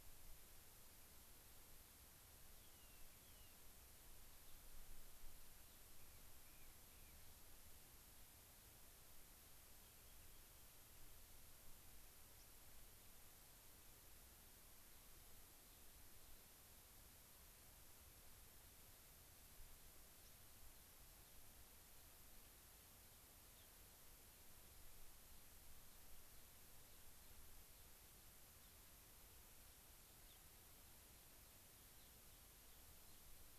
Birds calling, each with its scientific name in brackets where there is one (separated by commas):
Gray-crowned Rosy-Finch (Leucosticte tephrocotis), White-crowned Sparrow (Zonotrichia leucophrys), Rock Wren (Salpinctes obsoletus)